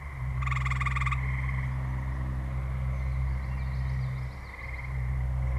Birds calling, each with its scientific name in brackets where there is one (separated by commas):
Common Yellowthroat (Geothlypis trichas)